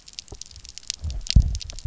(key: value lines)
label: biophony, double pulse
recorder: SoundTrap 300